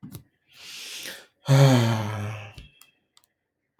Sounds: Sigh